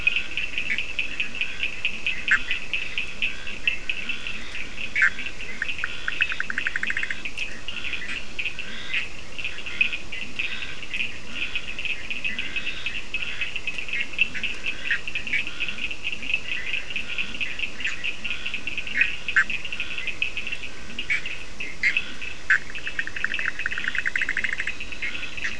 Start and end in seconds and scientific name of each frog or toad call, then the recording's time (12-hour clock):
0.0	7.6	Boana bischoffi
0.0	19.3	Leptodactylus latrans
0.0	22.9	Scinax perereca
0.0	25.5	Sphaenorhynchus surdus
18.6	25.5	Boana bischoffi
4:00am